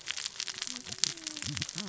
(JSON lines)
{"label": "biophony, cascading saw", "recorder": "SoundTrap 600 or HydroMoth"}